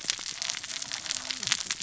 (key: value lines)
label: biophony, cascading saw
recorder: SoundTrap 600 or HydroMoth